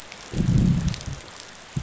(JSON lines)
{"label": "biophony, growl", "recorder": "SoundTrap 500"}